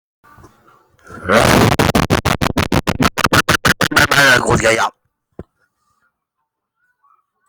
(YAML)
expert_labels:
- quality: no cough present
  dyspnea: false
  wheezing: false
  stridor: false
  choking: false
  congestion: false
  nothing: false
age: 59
gender: male
respiratory_condition: true
fever_muscle_pain: false
status: COVID-19